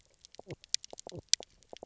{"label": "biophony, knock croak", "recorder": "SoundTrap 300"}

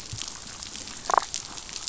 {"label": "biophony, damselfish", "recorder": "SoundTrap 500"}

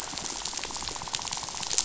{"label": "biophony, rattle", "recorder": "SoundTrap 500"}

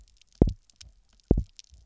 {"label": "biophony, double pulse", "recorder": "SoundTrap 300"}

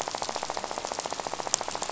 {"label": "biophony, rattle", "recorder": "SoundTrap 500"}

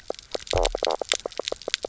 {"label": "biophony, knock croak", "recorder": "SoundTrap 300"}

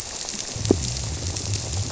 {"label": "biophony", "recorder": "SoundTrap 300"}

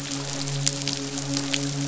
{"label": "biophony, midshipman", "recorder": "SoundTrap 500"}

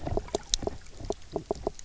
{"label": "biophony, knock croak", "recorder": "SoundTrap 300"}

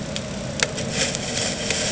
{"label": "anthrophony, boat engine", "recorder": "HydroMoth"}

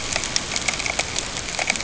{"label": "ambient", "recorder": "HydroMoth"}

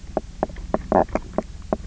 {"label": "biophony, knock croak", "recorder": "SoundTrap 300"}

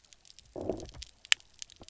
{"label": "biophony, low growl", "recorder": "SoundTrap 300"}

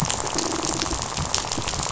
{"label": "biophony, rattle", "recorder": "SoundTrap 500"}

